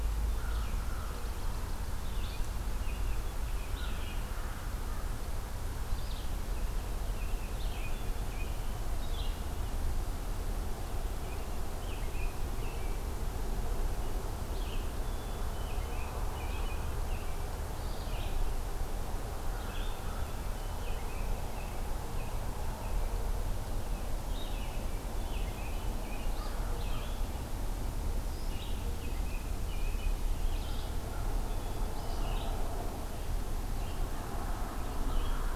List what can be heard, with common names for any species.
American Crow, Red-eyed Vireo, American Robin, Black-capped Chickadee